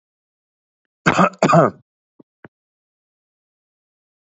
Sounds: Cough